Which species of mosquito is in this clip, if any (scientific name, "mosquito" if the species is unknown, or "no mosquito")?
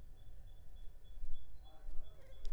Culex pipiens complex